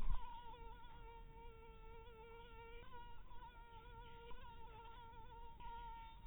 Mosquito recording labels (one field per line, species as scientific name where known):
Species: mosquito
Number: one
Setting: cup